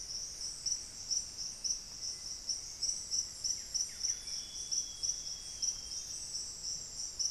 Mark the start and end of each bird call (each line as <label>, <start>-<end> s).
Black-faced Antthrush (Formicarius analis), 1.7-3.9 s
Buff-breasted Wren (Cantorchilus leucotis), 3.2-5.0 s
Amazonian Grosbeak (Cyanoloxia rothschildii), 4.0-6.6 s
unidentified bird, 4.2-4.6 s